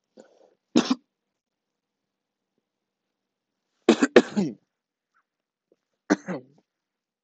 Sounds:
Throat clearing